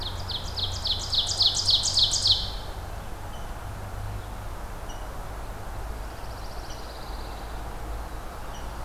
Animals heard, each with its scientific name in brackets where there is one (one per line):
Rose-breasted Grosbeak (Pheucticus ludovicianus)
Ovenbird (Seiurus aurocapilla)
Pine Warbler (Setophaga pinus)